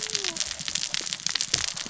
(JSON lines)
{"label": "biophony, cascading saw", "recorder": "SoundTrap 600 or HydroMoth"}